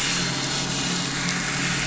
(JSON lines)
{"label": "anthrophony, boat engine", "recorder": "SoundTrap 500"}